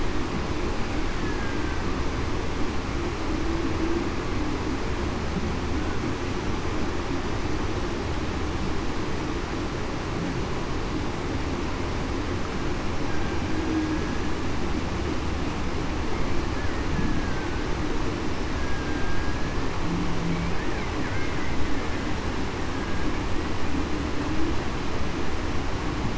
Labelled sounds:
17.1	17.7	killer whale, Bigg's (transient), 1.5 to 1.7 kHz
18.5	19.6	killer whale, Bigg's (transient), 1.6 to 1.7 kHz

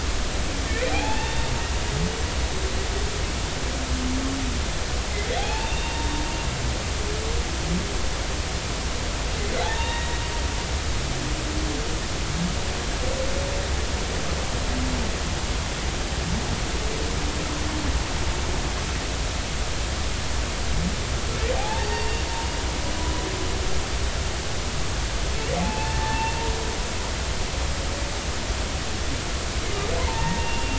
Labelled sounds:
0.7	1.5	humpback whale, 0.80 to 3.7 kHz
5.4	6.1	humpback whale, 0.80 to 3.8 kHz
9.6	10.2	humpback whale, 0.80 to 3.9 kHz
21.6	22.5	humpback whale, 0.80 to 4.7 kHz
25.6	26.3	humpback whale, 0.80 to 1.8 kHz
30.0	30.7	humpback whale, 0.83 to 2.8 kHz

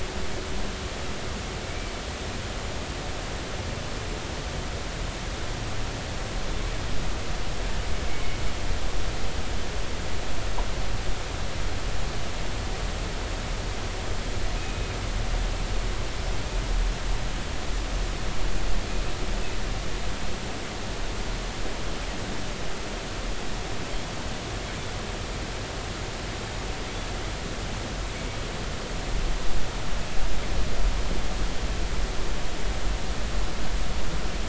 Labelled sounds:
14.6	14.9	killer whale, northern resident, G clan, GI subclan, call N23i, 2.5 to 2.6 kHz

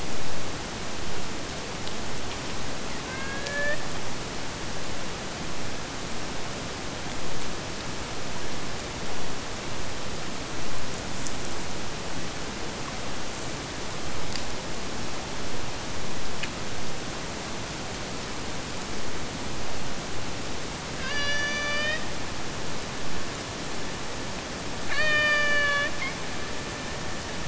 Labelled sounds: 3.0	3.8	killer whale, Bigg's (transient), AT1 transient, 0.38 to 4.2 kHz
21.0	22.1	killer whale, Bigg's (transient), AT1 transient, 0.44 to 7.1 kHz
24.9	26.2	killer whale, Bigg's (transient), AT1 transient, 0.49 to 7.9 kHz

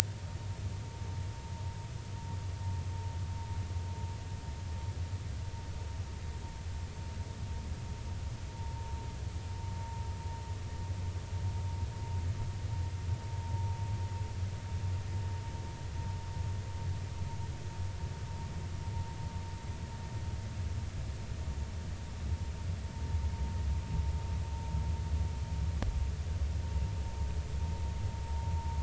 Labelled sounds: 8.5	8.9	vessel noise, 0.83 to 1.1 kHz

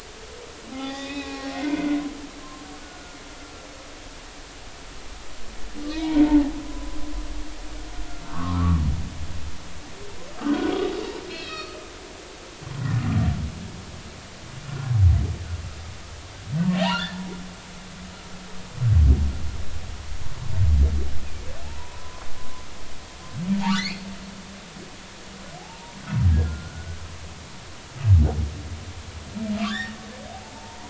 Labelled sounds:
1.0	2.4	humpback whale, 0.80 to 7.2 kHz
2.8	3.2	humpback whale, 1.4 to 1.5 kHz
5.9	7.0	humpback whale, 0.80 to 2.4 kHz
8.3	8.8	humpback whale, 0.99 to 1.4 kHz
10.4	10.7	humpback whale, 1.4 to 1.6 kHz
11.3	11.8	humpback whale, 1.2 to 5.3 kHz
16.7	17.2	humpback whale, 0.80 to 3.0 kHz
21.6	22.2	humpback whale, 0.80 to 1.1 kHz
23.7	24.0	humpback whale, 1.1 to 5.0 kHz
25.6	27.0	humpback whale, 0.80 to 1.5 kHz
29.6	30.8	humpback whale, 0.83 to 5.4 kHz

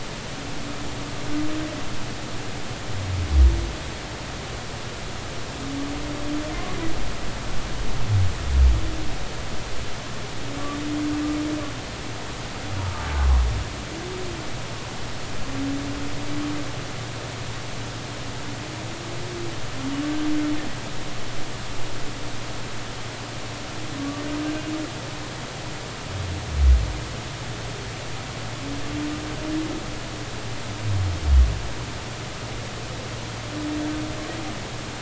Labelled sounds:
12.8	13.0	humpback whale, 0.83 to 0.99 kHz
24.0	24.2	humpback whale, 1.1 to 1.2 kHz

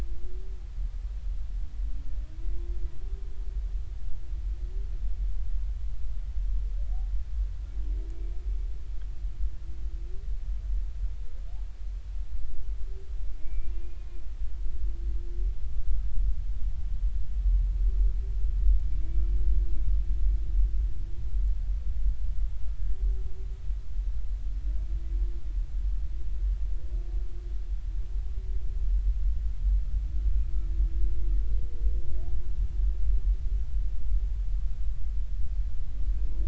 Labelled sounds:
13.4	14.1	humpback whale, 2.1 to 2.5 kHz
19.0	19.4	humpback whale, 2.2 to 2.4 kHz

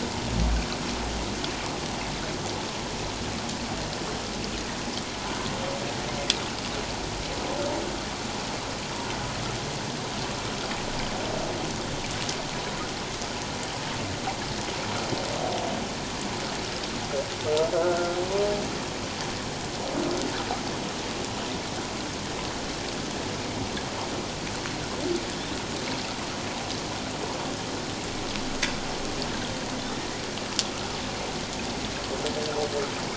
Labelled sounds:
17.7	18.2	humpback whale, 1.2 to 1.6 kHz

